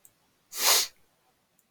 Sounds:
Sniff